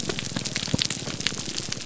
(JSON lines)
{"label": "biophony, grouper groan", "recorder": "SoundTrap 300"}